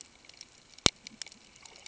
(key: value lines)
label: ambient
recorder: HydroMoth